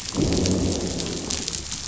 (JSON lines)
{"label": "biophony, growl", "recorder": "SoundTrap 500"}